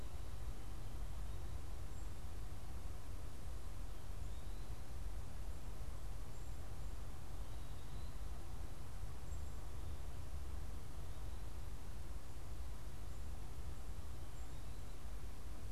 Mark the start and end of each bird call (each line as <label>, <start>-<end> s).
Black-capped Chickadee (Poecile atricapillus), 9.0-14.7 s